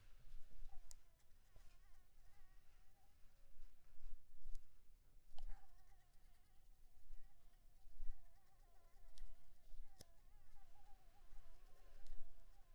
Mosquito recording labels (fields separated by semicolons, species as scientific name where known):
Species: Anopheles maculipalpis; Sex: female; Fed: blood-fed; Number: one; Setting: cup